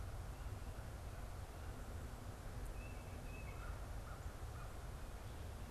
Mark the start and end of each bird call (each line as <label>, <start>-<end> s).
Tufted Titmouse (Baeolophus bicolor), 2.6-3.9 s
American Crow (Corvus brachyrhynchos), 3.5-5.0 s